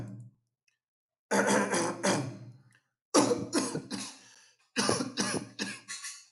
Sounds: Cough